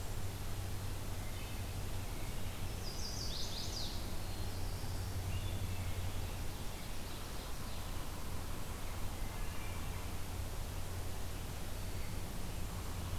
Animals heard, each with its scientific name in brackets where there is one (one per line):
Chestnut-sided Warbler (Setophaga pensylvanica)
Wood Thrush (Hylocichla mustelina)
Ovenbird (Seiurus aurocapilla)
Black-throated Blue Warbler (Setophaga caerulescens)